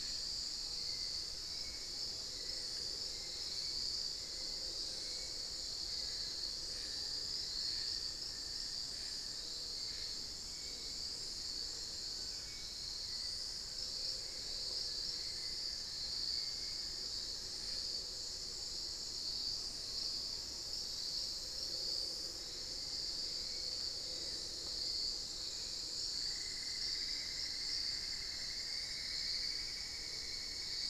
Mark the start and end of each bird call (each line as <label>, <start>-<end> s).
Hauxwell's Thrush (Turdus hauxwelli), 0.0-30.9 s
unidentified bird, 6.0-10.3 s
Long-billed Woodcreeper (Nasica longirostris), 11.6-16.3 s
unidentified bird, 14.8-18.1 s
Cinnamon-throated Woodcreeper (Dendrexetastes rufigula), 26.0-30.9 s